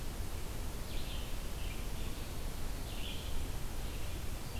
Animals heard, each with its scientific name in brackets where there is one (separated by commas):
Red-eyed Vireo (Vireo olivaceus)